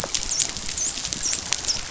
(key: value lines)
label: biophony, dolphin
recorder: SoundTrap 500